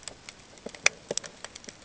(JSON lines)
{"label": "ambient", "recorder": "HydroMoth"}